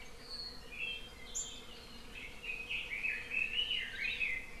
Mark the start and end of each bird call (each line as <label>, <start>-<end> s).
Warbling White-eye (Zosterops japonicus), 1.3-1.7 s
Red-billed Leiothrix (Leiothrix lutea), 2.1-4.6 s